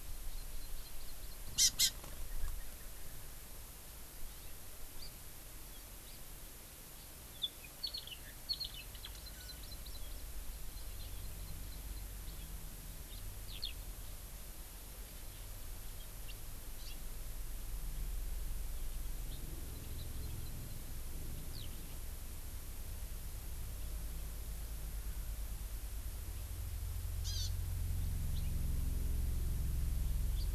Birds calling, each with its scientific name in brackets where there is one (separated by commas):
Eurasian Skylark (Alauda arvensis), House Finch (Haemorhous mexicanus), Hawaii Amakihi (Chlorodrepanis virens)